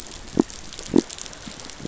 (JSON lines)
{"label": "biophony", "recorder": "SoundTrap 500"}